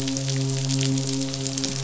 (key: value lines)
label: biophony, midshipman
recorder: SoundTrap 500